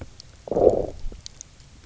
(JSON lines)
{"label": "biophony, low growl", "recorder": "SoundTrap 300"}